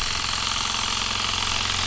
{"label": "anthrophony, boat engine", "recorder": "SoundTrap 300"}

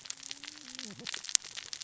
{"label": "biophony, cascading saw", "recorder": "SoundTrap 600 or HydroMoth"}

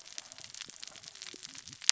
{"label": "biophony, cascading saw", "recorder": "SoundTrap 600 or HydroMoth"}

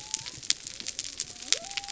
{"label": "biophony", "recorder": "SoundTrap 300"}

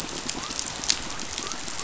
{"label": "biophony", "recorder": "SoundTrap 500"}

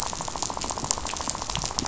{"label": "biophony, rattle", "recorder": "SoundTrap 500"}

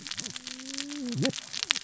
{"label": "biophony, cascading saw", "recorder": "SoundTrap 600 or HydroMoth"}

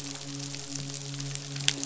{"label": "biophony, midshipman", "recorder": "SoundTrap 500"}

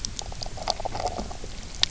{"label": "biophony, knock croak", "recorder": "SoundTrap 300"}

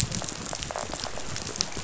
{"label": "biophony", "recorder": "SoundTrap 500"}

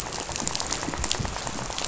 {"label": "biophony, rattle", "recorder": "SoundTrap 500"}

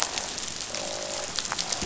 {"label": "biophony, croak", "recorder": "SoundTrap 500"}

